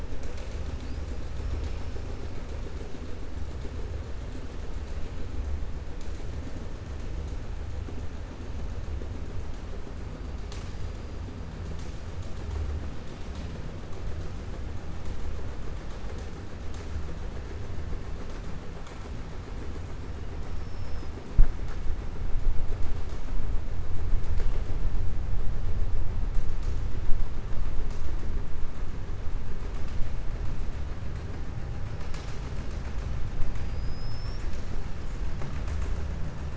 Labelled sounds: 20.5	21.1	killer whale, southern resident, 4.8 to 5.5 kHz
33.6	34.7	killer whale, southern resident, 3.6 to 7.9 kHz

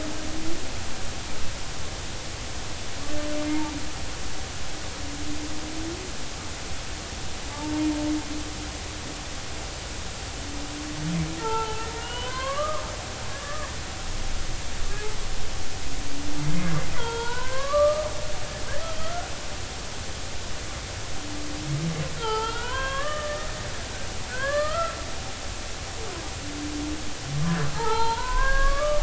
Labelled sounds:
7.5	7.8	humpback whale, 0.83 to 0.96 kHz
11.4	12.8	humpback whale, 0.83 to 3.3 kHz
13.3	13.7	humpback whale, 1.0 to 1.9 kHz
16.4	18.1	humpback whale, 0.86 to 4.1 kHz
19.0	19.3	humpback whale, 1.2 to 1.5 kHz
22.2	23.5	humpback whale, 0.80 to 3.4 kHz
24.3	25.0	humpback whale, 0.99 to 2.0 kHz
27.7	29.0	humpback whale, 0.80 to 4.2 kHz

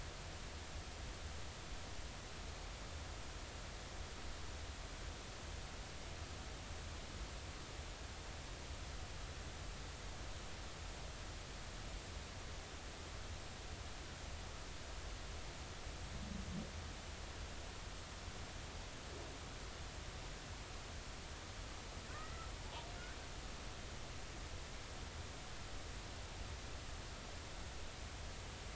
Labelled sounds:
22.1	22.5	killer whale, Bigg's (transient), 1.2 to 2.0 kHz

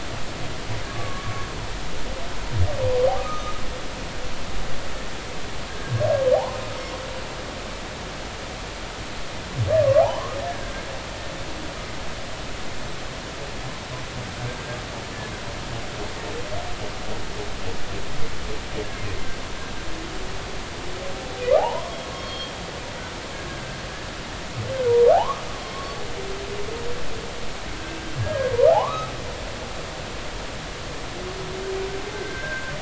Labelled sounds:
0.9	1.5	humpback whale, 1.0 to 1.2 kHz
3.2	3.6	humpback whale, 1.1 to 1.3 kHz
5.7	5.9	humpback whale, 1.6 to 1.7 kHz
9.8	10.7	humpback whale, 0.80 to 1.8 kHz
14.5	14.8	humpback whale, 1.5 to 1.7 kHz
21.6	21.8	humpback whale, 0.80 to 1.1 kHz
22.1	22.5	humpback whale, 3.1 to 4.4 kHz
23.5	23.8	humpback whale, 1.5 to 1.7 kHz
25.1	26.0	humpback whale, 0.80 to 1.3 kHz
28.2	29.1	humpback whale, 0.80 to 1.7 kHz
32.1	32.7	humpback whale, 1.5 to 1.7 kHz

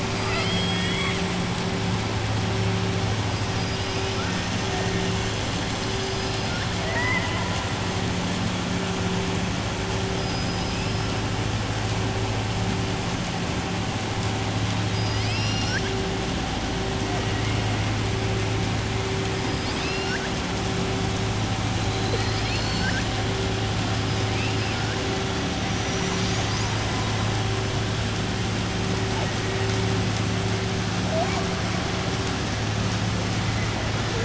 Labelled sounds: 0.1	1.2	killer whale, southern resident, 0.67 to 5.3 kHz
6.7	7.5	killer whale, southern resident, 0.63 to 3.0 kHz
10.1	11.1	killer whale, southern resident, 4.7 to 5.5 kHz
14.8	15.9	killer whale, southern resident, 1.5 to 5.9 kHz
19.4	20.3	killer whale, southern resident, 1.4 to 5.6 kHz
21.8	23.0	killer whale, southern resident, 2.3 to 5.5 kHz
24.3	24.9	killer whale, southern resident, 1.4 to 3.6 kHz

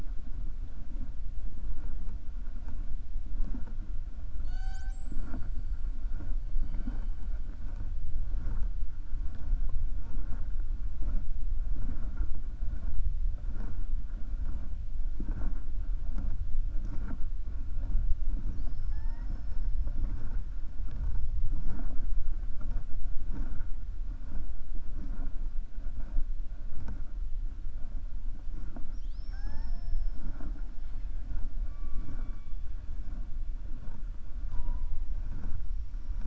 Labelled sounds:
28.8	30.2	killer whale, 0.56 to 6.6 kHz

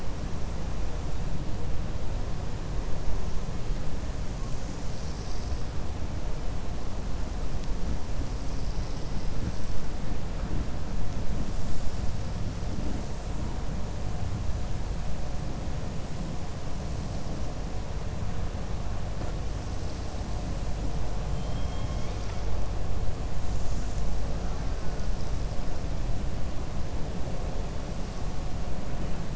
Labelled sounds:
21.3	22.4	killer whale, 1.3 to 6.2 kHz

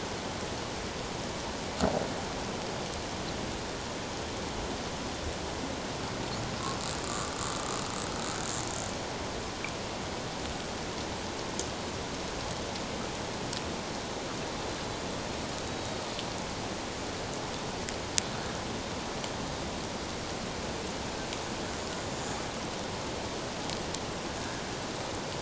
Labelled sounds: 7.1	7.3	killer whale, Bigg's (transient), 1.1 to 1.4 kHz
15.6	16.0	killer whale, Bigg's (transient), 3.8 to 3.9 kHz
22.1	22.3	killer whale, Bigg's (transient), 6.9 to 7.1 kHz
24.4	24.6	killer whale, 1.3 to 1.7 kHz

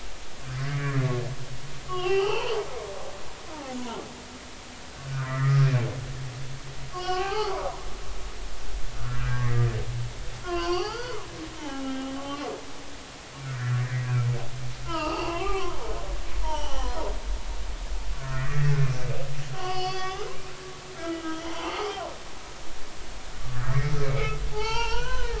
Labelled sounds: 1.9	2.6	humpback whale, 0.80 to 4.5 kHz
5.1	5.7	humpback whale, 1.1 to 2.1 kHz
6.9	7.7	humpback whale, 0.80 to 4.8 kHz
9.1	9.7	humpback whale, 1.5 to 2.0 kHz
10.4	12.1	humpback whale, 0.80 to 5.0 kHz
13.8	14.1	humpback whale, 1.6 to 2.1 kHz
14.8	15.8	humpback whale, 0.80 to 5.0 kHz
16.4	17.0	humpback whale, 0.80 to 5.9 kHz
18.1	18.7	humpback whale, 1.0 to 2.0 kHz
19.5	22.0	humpback whale, 0.80 to 6.3 kHz
23.6	25.3	humpback whale, 0.80 to 4.7 kHz

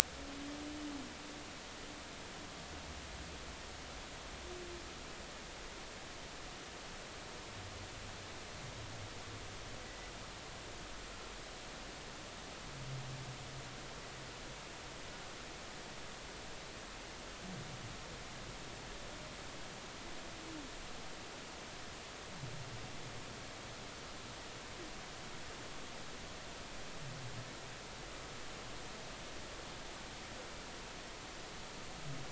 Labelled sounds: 9.8	10.1	humpback whale, 1.9 to 2.0 kHz

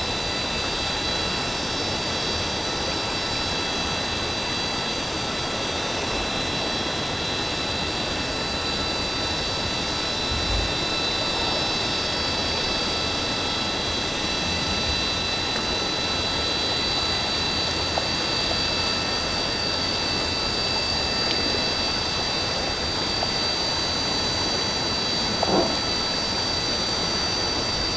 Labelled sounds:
0.0	0.3	vessel noise, 5.9 to 6.0 kHz

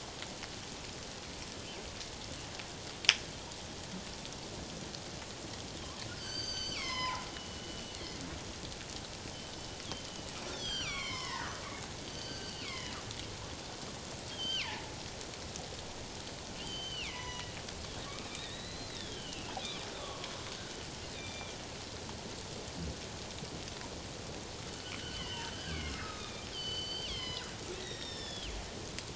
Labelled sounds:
6.1	8.2	killer whale, northern resident, G clan, 0.81 to 7.8 kHz
10.5	13.0	killer whale, northern resident, G clan, 0.88 to 7.5 kHz
14.3	14.7	killer whale, northern resident, G clan, 1.9 to 4.8 kHz
16.5	17.5	killer whale, northern resident, G clan, 0.91 to 6.0 kHz
18.3	20.3	killer whale, northern resident, G clan, 0.94 to 4.2 kHz
21.1	21.6	killer whale, northern resident, G clan, 2.3 to 6.0 kHz
24.7	27.5	killer whale, northern resident, G clan, 0.94 to 5.4 kHz
27.8	28.5	killer whale, northern resident, G clan, 1.7 to 7.6 kHz

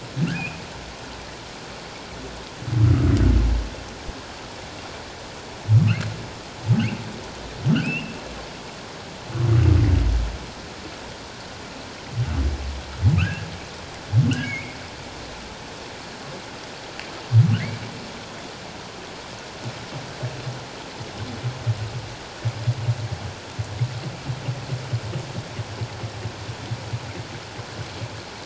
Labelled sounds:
0.3	0.6	humpback whale, 2.4 to 2.7 kHz
7.7	8.1	humpback whale, 2.3 to 3.1 kHz
13.2	13.5	humpback whale, 1.2 to 1.8 kHz
14.4	14.8	humpback whale, 2.1 to 2.6 kHz

